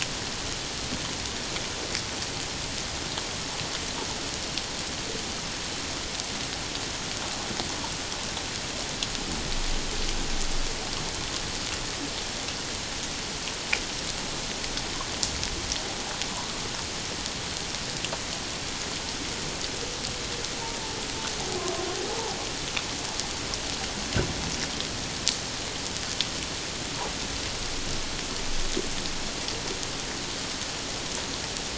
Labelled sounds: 22.1	22.4	humpback whale, 0.78 to 1.0 kHz

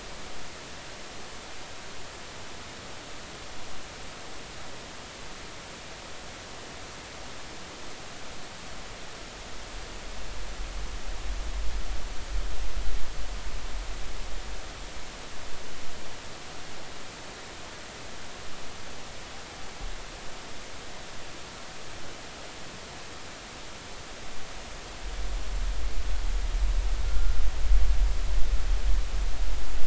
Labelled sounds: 27.0	27.4	humpback whale, 1.3 to 1.5 kHz

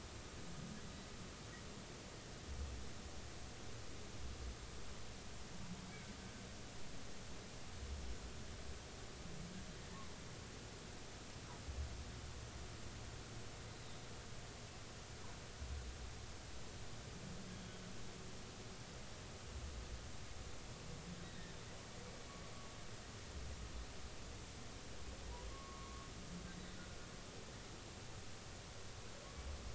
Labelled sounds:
13.7	14.0	humpback whale, 3.5 to 4.1 kHz
21.2	21.5	humpback whale, 3.6 to 3.9 kHz
25.5	26.1	humpback whale, 1.0 to 1.3 kHz

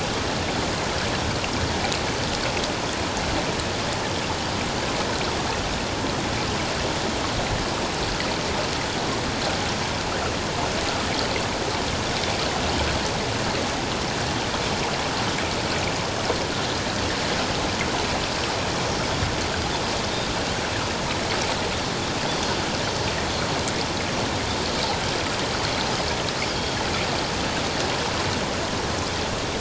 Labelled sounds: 26.5	26.8	Pacific white-sided dolphin, 3.2 to 3.4 kHz

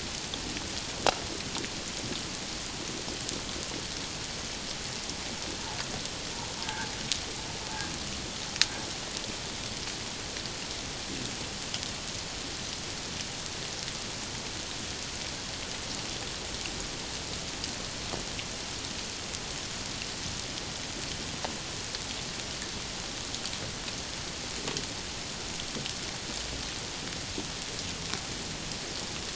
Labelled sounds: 6.6	6.9	humpback whale, 0.81 to 1.7 kHz

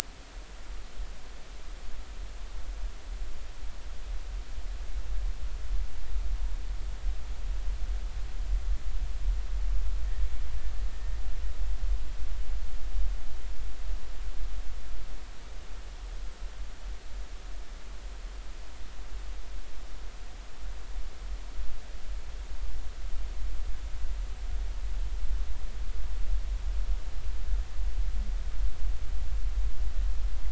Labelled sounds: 10.9	11.2	killer whale, Bigg's (transient), 1.8 to 1.9 kHz

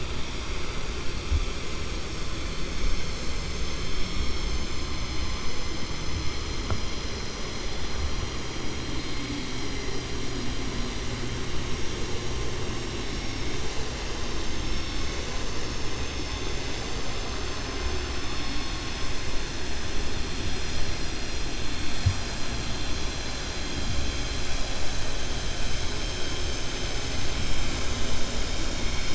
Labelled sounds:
4.9	5.8	vessel noise, 4.2 to 7.2 kHz

